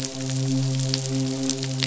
{"label": "biophony, midshipman", "recorder": "SoundTrap 500"}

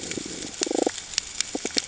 {"label": "ambient", "recorder": "HydroMoth"}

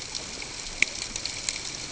{"label": "ambient", "recorder": "HydroMoth"}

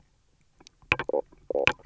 {"label": "biophony, knock croak", "recorder": "SoundTrap 300"}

